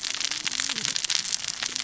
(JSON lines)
{"label": "biophony, cascading saw", "recorder": "SoundTrap 600 or HydroMoth"}